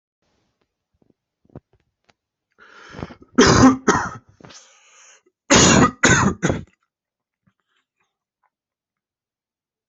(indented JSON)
{
  "expert_labels": [
    {
      "quality": "good",
      "cough_type": "dry",
      "dyspnea": false,
      "wheezing": false,
      "stridor": false,
      "choking": false,
      "congestion": false,
      "nothing": true,
      "diagnosis": "lower respiratory tract infection",
      "severity": "mild"
    }
  ],
  "age": 21,
  "gender": "male",
  "respiratory_condition": false,
  "fever_muscle_pain": false,
  "status": "healthy"
}